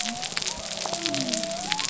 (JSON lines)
{"label": "biophony", "recorder": "SoundTrap 300"}